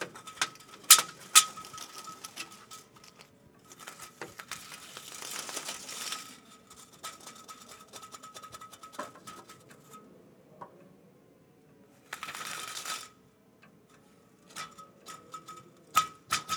Is the person mumbling?
no